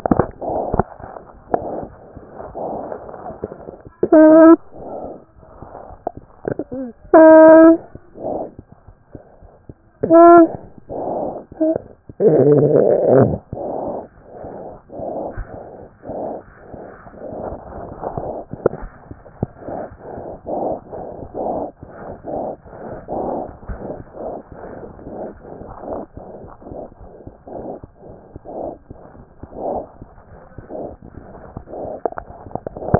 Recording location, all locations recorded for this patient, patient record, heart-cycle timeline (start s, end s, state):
aortic valve (AV)
aortic valve (AV)+mitral valve (MV)
#Age: Infant
#Sex: Male
#Height: nan
#Weight: 9.3 kg
#Pregnancy status: False
#Murmur: Absent
#Murmur locations: nan
#Most audible location: nan
#Systolic murmur timing: nan
#Systolic murmur shape: nan
#Systolic murmur grading: nan
#Systolic murmur pitch: nan
#Systolic murmur quality: nan
#Diastolic murmur timing: nan
#Diastolic murmur shape: nan
#Diastolic murmur grading: nan
#Diastolic murmur pitch: nan
#Diastolic murmur quality: nan
#Outcome: Normal
#Campaign: 2014 screening campaign
0.00	25.71	unannotated
25.71	25.90	diastole
25.90	26.04	S1
26.04	26.18	systole
26.18	26.24	S2
26.24	26.44	diastole
26.44	26.52	S1
26.52	26.70	systole
26.70	26.80	S2
26.80	27.02	diastole
27.02	27.12	S1
27.12	27.26	systole
27.26	27.34	S2
27.34	27.54	diastole
27.54	27.68	S1
27.68	27.84	systole
27.84	27.92	S2
27.92	28.10	diastole
28.10	28.18	S1
28.18	28.32	systole
28.32	28.40	S2
28.40	28.58	diastole
28.58	28.70	S1
28.70	28.88	systole
28.88	28.96	S2
28.96	29.18	diastole
29.18	29.24	S1
29.24	29.40	systole
29.40	29.48	S2
29.48	29.64	diastole
29.64	29.82	S1
29.82	29.98	systole
29.98	30.06	S2
30.06	30.28	diastole
30.28	30.34	S1
30.34	30.52	systole
30.52	30.62	S2
30.62	30.76	diastole
30.76	30.90	S1
30.90	31.03	systole
31.03	31.12	S2
31.12	31.36	diastole
31.36	32.99	unannotated